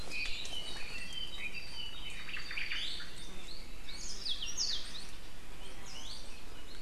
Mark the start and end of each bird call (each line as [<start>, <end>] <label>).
[0.42, 2.12] Apapane (Himatione sanguinea)
[2.02, 2.92] Omao (Myadestes obscurus)
[2.62, 3.12] Iiwi (Drepanis coccinea)
[3.82, 5.02] Yellow-fronted Canary (Crithagra mozambica)
[5.72, 6.32] Hawaii Creeper (Loxops mana)